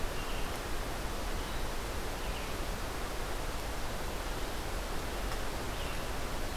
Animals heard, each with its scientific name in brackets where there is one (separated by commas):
Red-eyed Vireo (Vireo olivaceus)